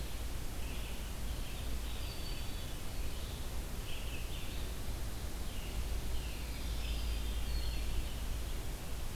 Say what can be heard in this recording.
Red-eyed Vireo, Veery, Wood Thrush